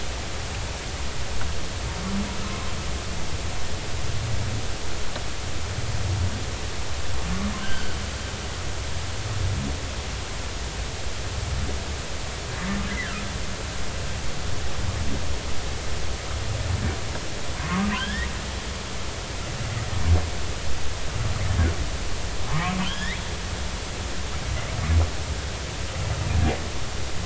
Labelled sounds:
7.6	8.0	humpback whale, 1.4 to 3.2 kHz
12.9	13.2	humpback whale, 1.2 to 2.1 kHz
17.6	18.3	humpback whale, 0.96 to 3.9 kHz
22.5	23.2	humpback whale, 0.83 to 3.5 kHz

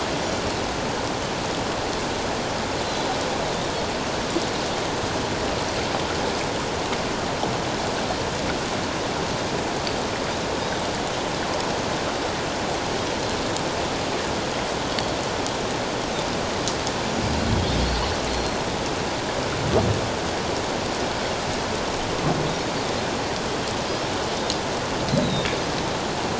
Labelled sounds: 17.5	18.6	Pacific white-sided dolphin, 3.2 to 4.3 kHz
25.1	25.5	Pacific white-sided dolphin, 3.6 to 4.2 kHz

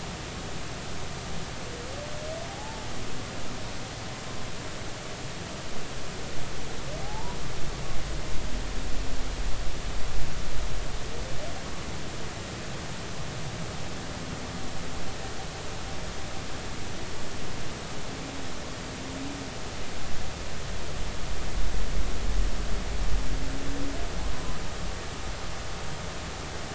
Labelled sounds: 2.5	2.8	humpback whale, 0.80 to 0.93 kHz
7.0	7.4	humpback whale, 0.80 to 1.0 kHz

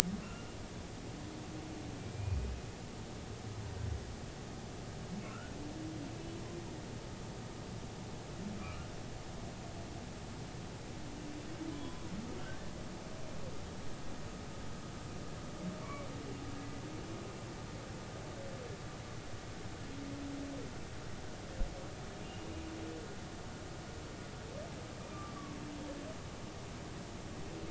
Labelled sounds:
0.2	0.5	humpback whale, 2.7 to 2.8 kHz
2.0	2.4	humpback whale, 2.3 to 2.5 kHz
5.2	5.5	humpback whale, 1.2 to 1.5 kHz
8.6	8.9	humpback whale, 1.1 to 1.5 kHz
11.7	12.1	humpback whale, 0.96 to 3.5 kHz
15.8	16.1	humpback whale, 0.93 to 2.4 kHz
22.2	22.5	humpback whale, 2.7 to 3.0 kHz
25.3	25.6	humpback whale, 1.0 to 1.2 kHz

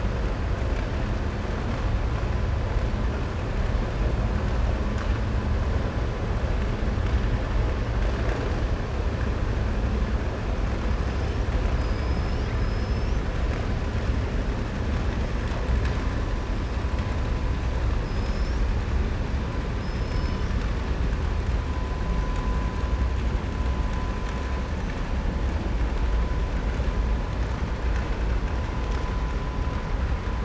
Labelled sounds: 11.7	13.2	killer whale, southern resident, 4.3 to 6.1 kHz
19.7	20.6	killer whale, southern resident, 4.3 to 6.0 kHz

